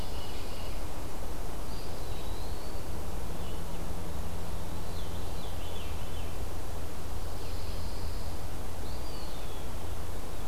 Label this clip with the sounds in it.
Pine Warbler, Veery, Red-eyed Vireo, Eastern Wood-Pewee